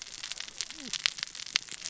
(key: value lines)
label: biophony, cascading saw
recorder: SoundTrap 600 or HydroMoth